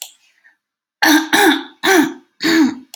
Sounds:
Throat clearing